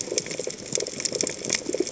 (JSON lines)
{"label": "biophony, chatter", "recorder": "HydroMoth"}